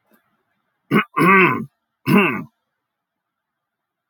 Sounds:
Throat clearing